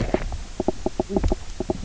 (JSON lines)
{"label": "biophony, knock croak", "recorder": "SoundTrap 300"}